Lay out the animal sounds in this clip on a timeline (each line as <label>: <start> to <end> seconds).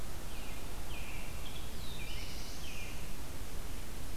American Robin (Turdus migratorius): 0.0 to 3.6 seconds
Black-throated Blue Warbler (Setophaga caerulescens): 1.0 to 3.1 seconds